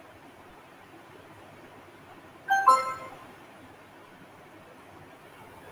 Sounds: Cough